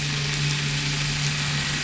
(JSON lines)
{"label": "anthrophony, boat engine", "recorder": "SoundTrap 500"}